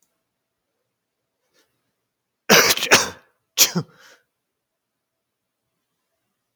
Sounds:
Sneeze